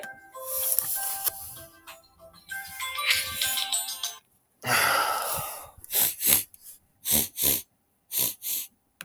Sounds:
Sniff